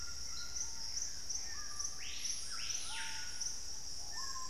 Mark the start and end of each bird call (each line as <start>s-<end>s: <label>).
0.0s-1.4s: Buff-throated Woodcreeper (Xiphorhynchus guttatus)
0.0s-4.5s: Dusky-throated Antshrike (Thamnomanes ardesiacus)
0.0s-4.5s: Screaming Piha (Lipaugus vociferans)
0.0s-4.5s: White-throated Toucan (Ramphastos tucanus)